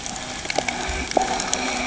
{"label": "anthrophony, boat engine", "recorder": "HydroMoth"}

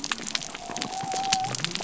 {"label": "biophony", "recorder": "SoundTrap 300"}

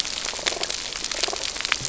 {"label": "biophony", "recorder": "SoundTrap 300"}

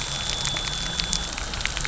{"label": "anthrophony, boat engine", "recorder": "SoundTrap 300"}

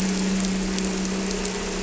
{"label": "anthrophony, boat engine", "recorder": "SoundTrap 300"}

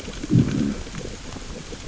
{"label": "biophony, growl", "recorder": "SoundTrap 600 or HydroMoth"}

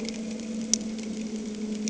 {"label": "anthrophony, boat engine", "recorder": "HydroMoth"}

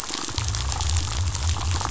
{"label": "biophony", "recorder": "SoundTrap 500"}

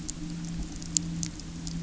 {"label": "anthrophony, boat engine", "recorder": "SoundTrap 300"}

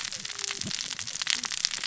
{"label": "biophony, cascading saw", "recorder": "SoundTrap 600 or HydroMoth"}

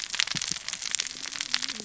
{"label": "biophony, cascading saw", "recorder": "SoundTrap 600 or HydroMoth"}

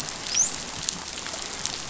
{"label": "biophony, dolphin", "recorder": "SoundTrap 500"}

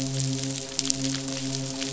{"label": "biophony, midshipman", "recorder": "SoundTrap 500"}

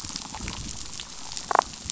{"label": "biophony, damselfish", "recorder": "SoundTrap 500"}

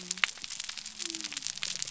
{"label": "biophony", "recorder": "SoundTrap 300"}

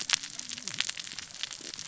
{"label": "biophony, cascading saw", "recorder": "SoundTrap 600 or HydroMoth"}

